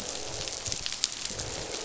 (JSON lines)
{"label": "biophony, croak", "recorder": "SoundTrap 500"}